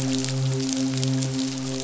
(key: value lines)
label: biophony, midshipman
recorder: SoundTrap 500